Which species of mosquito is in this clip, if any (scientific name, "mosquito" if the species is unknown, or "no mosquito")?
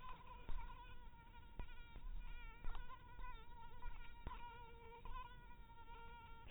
mosquito